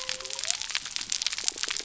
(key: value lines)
label: biophony
recorder: SoundTrap 300